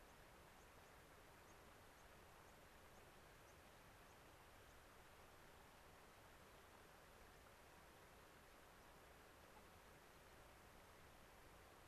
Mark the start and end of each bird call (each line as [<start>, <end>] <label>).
[0.00, 0.20] White-crowned Sparrow (Zonotrichia leucophrys)
[0.60, 0.90] White-crowned Sparrow (Zonotrichia leucophrys)
[1.40, 1.60] White-crowned Sparrow (Zonotrichia leucophrys)
[1.90, 2.00] White-crowned Sparrow (Zonotrichia leucophrys)
[2.50, 2.60] White-crowned Sparrow (Zonotrichia leucophrys)
[2.90, 3.00] White-crowned Sparrow (Zonotrichia leucophrys)
[3.40, 3.50] White-crowned Sparrow (Zonotrichia leucophrys)
[4.70, 4.80] White-crowned Sparrow (Zonotrichia leucophrys)